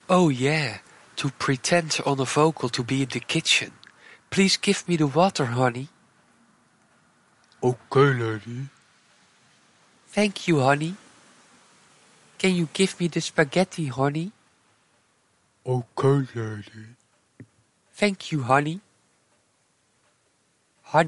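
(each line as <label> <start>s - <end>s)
A man is speaking. 0.1s - 6.3s
A man is speaking. 7.3s - 8.9s
A man is speaking. 10.0s - 11.3s
A man is speaking. 12.2s - 14.5s
Man speaking with short pauses. 15.5s - 19.0s
A man is speaking. 20.7s - 21.1s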